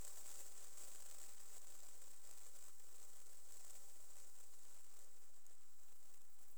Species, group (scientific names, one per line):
Tessellana tessellata
Orthoptera